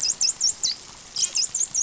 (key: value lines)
label: biophony, dolphin
recorder: SoundTrap 500